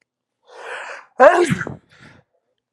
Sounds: Sneeze